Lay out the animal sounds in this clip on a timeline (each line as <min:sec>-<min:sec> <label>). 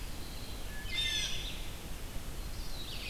0:00.0-0:03.1 Red-eyed Vireo (Vireo olivaceus)
0:00.7-0:01.4 Wood Thrush (Hylocichla mustelina)
0:00.8-0:01.5 Blue Jay (Cyanocitta cristata)
0:02.3-0:03.1 Black-throated Blue Warbler (Setophaga caerulescens)